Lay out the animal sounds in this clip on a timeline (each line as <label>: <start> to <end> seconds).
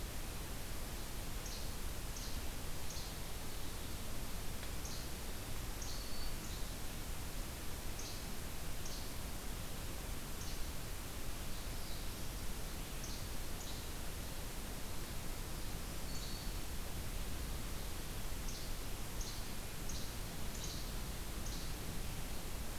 Least Flycatcher (Empidonax minimus): 1.3 to 3.2 seconds
Least Flycatcher (Empidonax minimus): 4.8 to 5.0 seconds
Black-throated Green Warbler (Setophaga virens): 5.7 to 6.5 seconds
Least Flycatcher (Empidonax minimus): 5.8 to 6.7 seconds
Least Flycatcher (Empidonax minimus): 7.9 to 8.2 seconds
Least Flycatcher (Empidonax minimus): 8.7 to 9.1 seconds
Least Flycatcher (Empidonax minimus): 10.3 to 10.7 seconds
Northern Parula (Setophaga americana): 11.2 to 12.5 seconds
Least Flycatcher (Empidonax minimus): 12.9 to 13.8 seconds
Black-throated Green Warbler (Setophaga virens): 15.8 to 16.7 seconds
Least Flycatcher (Empidonax minimus): 16.1 to 16.4 seconds
Least Flycatcher (Empidonax minimus): 18.4 to 21.7 seconds